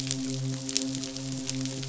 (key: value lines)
label: biophony, midshipman
recorder: SoundTrap 500